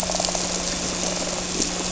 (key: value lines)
label: anthrophony, boat engine
recorder: SoundTrap 300